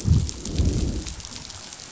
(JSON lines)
{"label": "biophony, growl", "recorder": "SoundTrap 500"}